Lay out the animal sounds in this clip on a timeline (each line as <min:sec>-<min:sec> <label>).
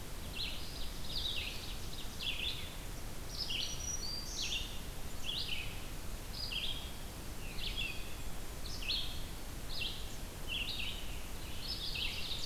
0:00.1-0:02.4 Ovenbird (Seiurus aurocapilla)
0:00.2-0:12.5 Red-eyed Vireo (Vireo olivaceus)
0:03.3-0:04.7 Black-throated Green Warbler (Setophaga virens)
0:07.2-0:08.2 Eastern Wood-Pewee (Contopus virens)
0:07.5-0:08.8 Blackburnian Warbler (Setophaga fusca)